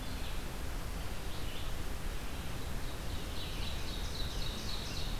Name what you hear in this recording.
Red-eyed Vireo, Ovenbird